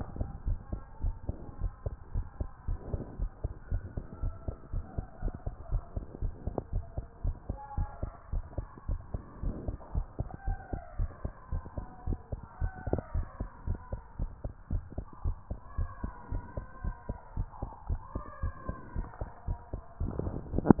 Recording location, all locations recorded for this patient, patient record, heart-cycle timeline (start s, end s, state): tricuspid valve (TV)
aortic valve (AV)+pulmonary valve (PV)+tricuspid valve (TV)+mitral valve (MV)
#Age: Child
#Sex: Male
#Height: 131.0 cm
#Weight: 32.0 kg
#Pregnancy status: False
#Murmur: Absent
#Murmur locations: nan
#Most audible location: nan
#Systolic murmur timing: nan
#Systolic murmur shape: nan
#Systolic murmur grading: nan
#Systolic murmur pitch: nan
#Systolic murmur quality: nan
#Diastolic murmur timing: nan
#Diastolic murmur shape: nan
#Diastolic murmur grading: nan
#Diastolic murmur pitch: nan
#Diastolic murmur quality: nan
#Outcome: Normal
#Campaign: 2015 screening campaign
0.00	1.40	unannotated
1.40	1.60	diastole
1.60	1.72	S1
1.72	1.84	systole
1.84	1.98	S2
1.98	2.12	diastole
2.12	2.26	S1
2.26	2.38	systole
2.38	2.50	S2
2.50	2.64	diastole
2.64	2.78	S1
2.78	2.90	systole
2.90	3.06	S2
3.06	3.20	diastole
3.20	3.32	S1
3.32	3.40	systole
3.40	3.52	S2
3.52	3.68	diastole
3.68	3.82	S1
3.82	3.94	systole
3.94	4.04	S2
4.04	4.20	diastole
4.20	4.34	S1
4.34	4.44	systole
4.44	4.54	S2
4.54	4.70	diastole
4.70	4.84	S1
4.84	4.96	systole
4.96	5.08	S2
5.08	5.21	diastole
5.21	5.32	S1
5.32	5.41	systole
5.41	5.54	S2
5.54	5.68	diastole
5.68	5.82	S1
5.82	5.94	systole
5.94	6.04	S2
6.04	6.18	diastole
6.18	6.32	S1
6.32	6.44	systole
6.44	6.54	S2
6.54	6.70	diastole
6.70	6.84	S1
6.84	6.93	systole
6.93	7.08	S2
7.08	7.22	diastole
7.22	7.37	S1
7.37	7.46	systole
7.46	7.60	S2
7.60	7.74	diastole
7.74	7.88	S1
7.88	8.00	systole
8.00	8.14	S2
8.14	8.30	diastole
8.30	8.44	S1
8.44	8.56	systole
8.56	8.68	S2
8.68	8.86	diastole
8.86	9.00	S1
9.00	9.11	systole
9.11	9.22	S2
9.22	9.40	diastole
9.40	9.54	S1
9.54	9.66	systole
9.66	9.78	S2
9.78	9.90	diastole
9.90	10.06	S1
10.06	10.16	systole
10.16	10.28	S2
10.28	10.43	diastole
10.43	10.58	S1
10.58	10.69	systole
10.69	10.80	S2
10.80	10.96	diastole
10.96	11.10	S1
11.10	11.22	systole
11.22	11.32	S2
11.32	11.49	diastole
11.49	11.64	S1
11.64	11.75	systole
11.75	11.86	S2
11.86	12.04	diastole
12.04	12.18	S1
12.18	12.30	systole
12.30	12.40	S2
12.40	12.58	diastole
12.58	12.72	S1
12.72	12.86	systole
12.86	12.98	S2
12.98	13.12	diastole
13.12	13.26	S1
13.26	13.38	systole
13.38	13.48	S2
13.48	13.65	diastole
13.65	13.80	S1
13.80	13.89	systole
13.89	14.00	S2
14.00	14.16	diastole
14.16	14.30	S1
14.30	14.42	systole
14.42	14.54	S2
14.54	14.68	diastole
14.68	14.84	S1
14.84	14.94	systole
14.94	15.06	S2
15.06	15.22	diastole
15.22	15.36	S1
15.36	15.48	systole
15.48	15.58	S2
15.58	15.76	diastole
15.76	15.88	S1
15.88	16.02	systole
16.02	16.12	S2
16.12	16.29	diastole
16.29	16.42	S1
16.42	16.56	systole
16.56	16.68	S2
16.68	16.81	diastole
16.81	16.94	S1
16.94	17.06	systole
17.06	17.16	S2
17.16	17.33	diastole
17.33	17.48	S1
17.48	17.58	systole
17.58	17.70	S2
17.70	17.85	diastole
17.85	18.00	S1
18.00	18.12	systole
18.12	18.24	S2
18.24	18.40	diastole
18.40	18.54	S1
18.54	18.66	systole
18.66	20.80	unannotated